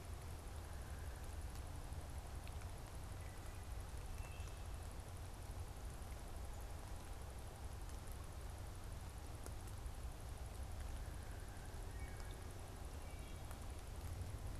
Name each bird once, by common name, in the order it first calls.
unidentified bird, Wood Thrush